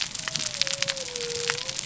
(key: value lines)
label: biophony
recorder: SoundTrap 300